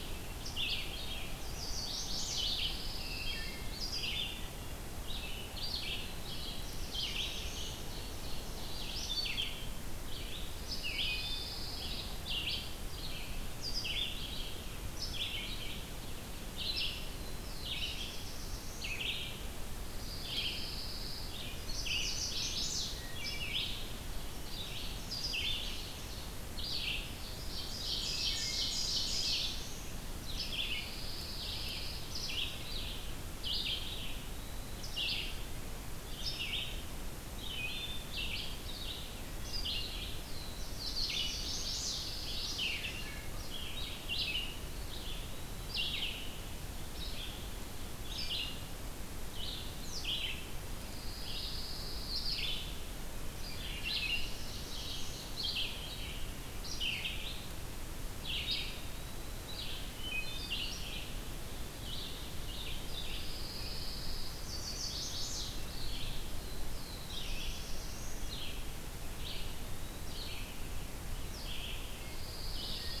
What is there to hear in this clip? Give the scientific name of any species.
Vireo olivaceus, Setophaga pensylvanica, Setophaga pinus, Hylocichla mustelina, Setophaga caerulescens, Seiurus aurocapilla, Contopus virens, Vireo solitarius